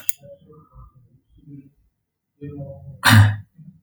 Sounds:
Cough